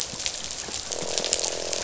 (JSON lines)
{"label": "biophony, croak", "recorder": "SoundTrap 500"}